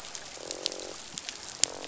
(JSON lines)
{"label": "biophony, croak", "recorder": "SoundTrap 500"}